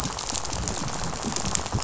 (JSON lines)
{"label": "biophony, rattle", "recorder": "SoundTrap 500"}